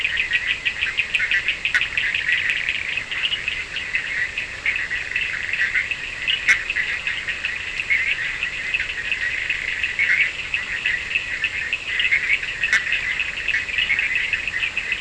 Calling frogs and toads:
Bischoff's tree frog (Boana bischoffi), Cochran's lime tree frog (Sphaenorhynchus surdus)
Atlantic Forest, Brazil, 3:30am

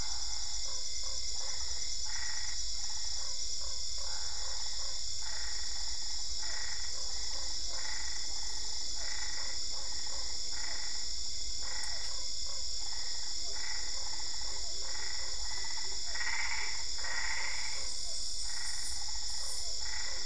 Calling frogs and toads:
Boana albopunctata, Usina tree frog (Boana lundii), Physalaemus cuvieri
Cerrado, Brazil, 10:30pm

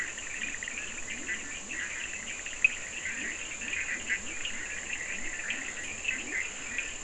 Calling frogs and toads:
Bischoff's tree frog (Boana bischoffi), Leptodactylus latrans, Cochran's lime tree frog (Sphaenorhynchus surdus)
Atlantic Forest, Brazil, 2am

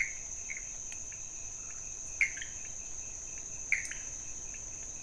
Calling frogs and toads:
pointedbelly frog (Leptodactylus podicipinus), Pithecopus azureus
Cerrado, Brazil, 1am

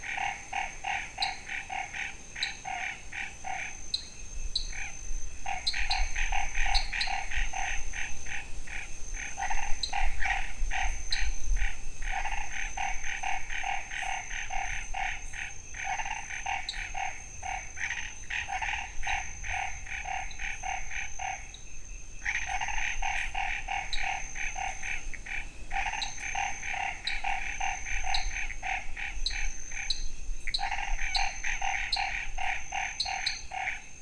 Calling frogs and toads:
Chaco tree frog (Boana raniceps), dwarf tree frog (Dendropsophus nanus), Pithecopus azureus
Cerrado, Brazil, ~7pm

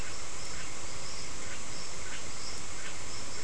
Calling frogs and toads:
Scinax perereca
Atlantic Forest, Brazil, ~7pm

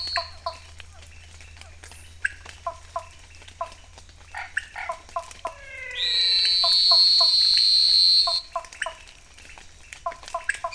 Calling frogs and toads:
pointedbelly frog (Leptodactylus podicipinus), Cuyaba dwarf frog (Physalaemus nattereri), dwarf tree frog (Dendropsophus nanus), Physalaemus cuvieri, Chaco tree frog (Boana raniceps), menwig frog (Physalaemus albonotatus), Elachistocleis matogrosso
Cerrado, Brazil, 7pm

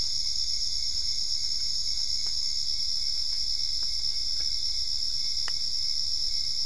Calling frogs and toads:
none
Cerrado, Brazil, ~9pm

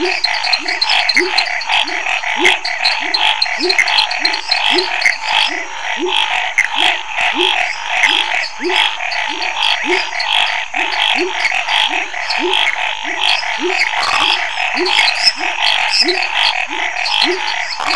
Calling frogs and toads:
Chaco tree frog (Boana raniceps), dwarf tree frog (Dendropsophus nanus), pepper frog (Leptodactylus labyrinthicus), Scinax fuscovarius, lesser tree frog (Dendropsophus minutus), Pithecopus azureus, rufous frog (Leptodactylus fuscus)
Cerrado, Brazil, ~8pm

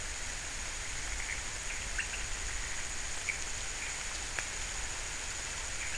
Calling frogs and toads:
none
Cerrado, Brazil, ~4am

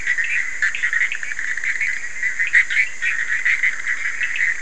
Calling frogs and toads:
Bischoff's tree frog (Boana bischoffi), Cochran's lime tree frog (Sphaenorhynchus surdus)
Atlantic Forest, Brazil, 2am

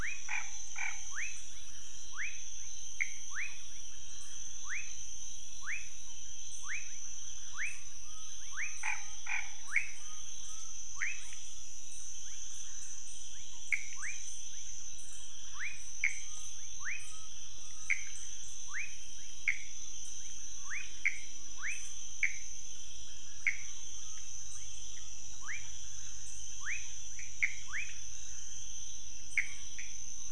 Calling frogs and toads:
rufous frog (Leptodactylus fuscus), Chaco tree frog (Boana raniceps), Pithecopus azureus
Cerrado, Brazil, 1am

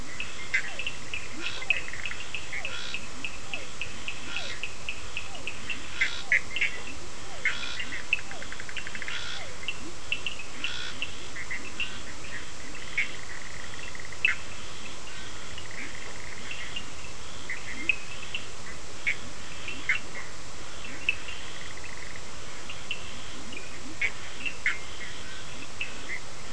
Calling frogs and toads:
Physalaemus cuvieri, Leptodactylus latrans, Cochran's lime tree frog (Sphaenorhynchus surdus), Bischoff's tree frog (Boana bischoffi), Scinax perereca
Atlantic Forest, Brazil, ~4am

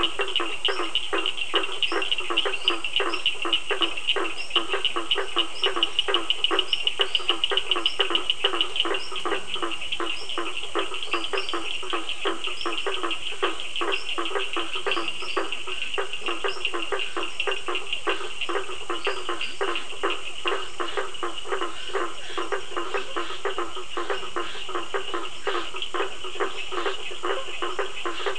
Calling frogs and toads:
Cochran's lime tree frog (Sphaenorhynchus surdus), blacksmith tree frog (Boana faber), Physalaemus cuvieri, lesser tree frog (Dendropsophus minutus), Scinax perereca
Atlantic Forest, Brazil, 7:30pm

